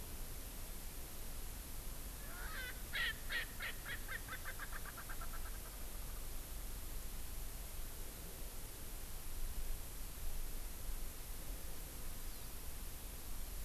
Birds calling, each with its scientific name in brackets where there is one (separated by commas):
Hawaii Amakihi (Chlorodrepanis virens), Erckel's Francolin (Pternistis erckelii)